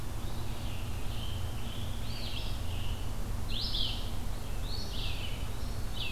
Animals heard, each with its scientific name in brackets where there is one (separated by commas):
Eastern Phoebe (Sayornis phoebe), Red-eyed Vireo (Vireo olivaceus), Eastern Wood-Pewee (Contopus virens), Scarlet Tanager (Piranga olivacea)